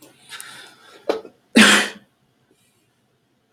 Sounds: Sneeze